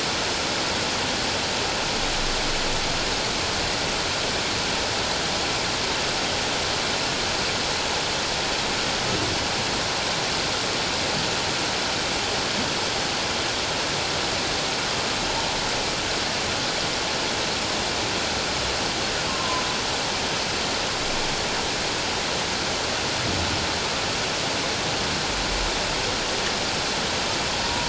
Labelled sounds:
19.3	19.6	humpback whale, 0.94 to 1.1 kHz
27.6	27.8	humpback whale, 0.91 to 1.1 kHz

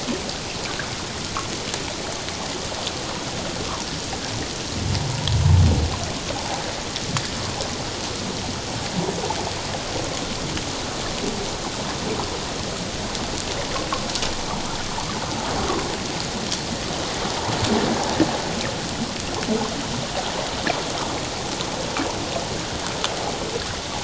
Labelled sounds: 6.3	6.6	water noise, 0.78 to 0.94 kHz

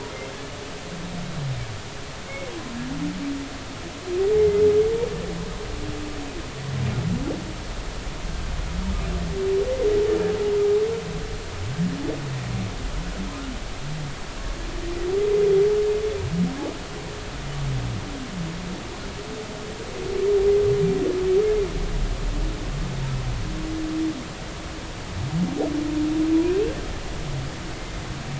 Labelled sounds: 4.4	4.6	humpback whale, 2.0 to 2.2 kHz

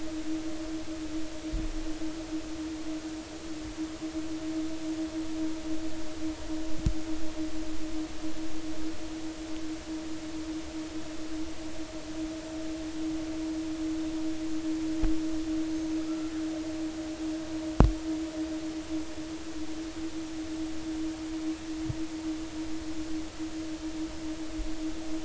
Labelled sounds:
16.1	16.3	killer whale, northern resident, 1.2 to 1.4 kHz

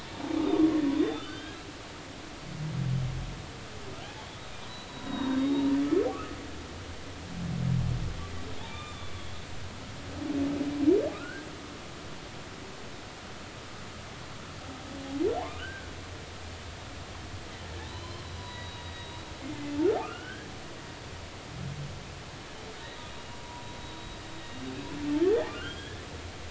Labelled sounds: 0.4	1.6	humpback whale, 1.2 to 3.8 kHz
4.2	6.4	humpback whale, 0.80 to 4.0 kHz
8.6	9.1	humpback whale, 0.80 to 3.7 kHz
11.1	11.5	humpback whale, 1.2 to 1.7 kHz
15.4	15.9	humpback whale, 0.80 to 1.7 kHz
17.8	19.2	humpback whale, 0.90 to 4.8 kHz
19.5	20.5	humpback whale, 1.1 to 3.3 kHz
24.3	24.6	humpback whale, 3.7 to 3.8 kHz
25.5	26.0	humpback whale, 1.3 to 3.5 kHz

